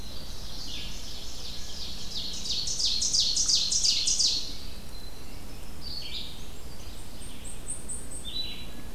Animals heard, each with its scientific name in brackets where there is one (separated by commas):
Red-eyed Vireo (Vireo olivaceus), Winter Wren (Troglodytes hiemalis), Blackpoll Warbler (Setophaga striata), Ovenbird (Seiurus aurocapilla), Blackburnian Warbler (Setophaga fusca)